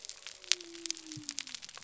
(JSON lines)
{"label": "biophony", "recorder": "SoundTrap 300"}